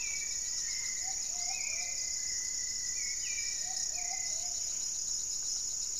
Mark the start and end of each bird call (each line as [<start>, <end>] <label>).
[0.00, 1.33] Goeldi's Antbird (Akletos goeldii)
[0.00, 4.23] Rufous-fronted Antthrush (Formicarius rufifrons)
[0.00, 6.00] Gray-fronted Dove (Leptotila rufaxilla)
[0.00, 6.00] Hauxwell's Thrush (Turdus hauxwelli)
[0.00, 6.00] Thrush-like Wren (Campylorhynchus turdinus)
[0.73, 6.00] Plumbeous Pigeon (Patagioenas plumbea)
[4.13, 5.03] Buff-breasted Wren (Cantorchilus leucotis)